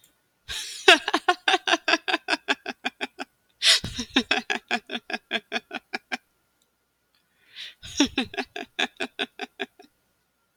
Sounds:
Laughter